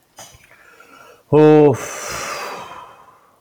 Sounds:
Sigh